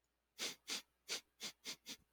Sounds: Sniff